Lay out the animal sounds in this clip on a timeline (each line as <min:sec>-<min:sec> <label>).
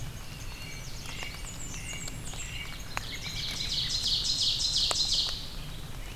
0:00.0-0:06.2 Red-eyed Vireo (Vireo olivaceus)
0:00.4-0:03.9 American Robin (Turdus migratorius)
0:00.8-0:01.5 Yellow Warbler (Setophaga petechia)
0:01.0-0:02.7 Blackburnian Warbler (Setophaga fusca)
0:02.7-0:05.5 Ovenbird (Seiurus aurocapilla)